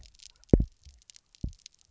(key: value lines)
label: biophony, double pulse
recorder: SoundTrap 300